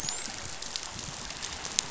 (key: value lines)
label: biophony, dolphin
recorder: SoundTrap 500